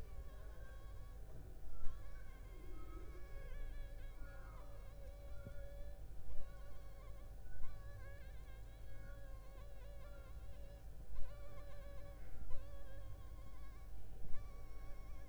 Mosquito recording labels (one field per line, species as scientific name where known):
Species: Anopheles funestus s.l.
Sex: female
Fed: unfed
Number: one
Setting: cup